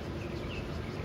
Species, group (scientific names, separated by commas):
Cryptotympana takasagona, Cicadidae